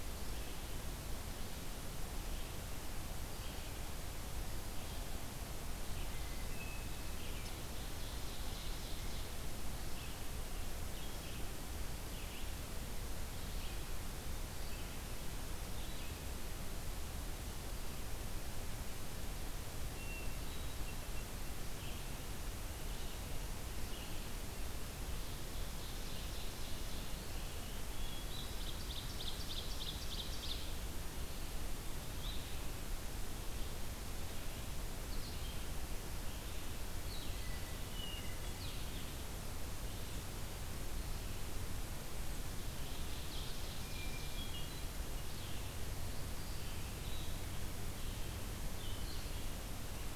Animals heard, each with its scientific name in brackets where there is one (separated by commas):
Red-eyed Vireo (Vireo olivaceus), Hermit Thrush (Catharus guttatus), Ovenbird (Seiurus aurocapilla)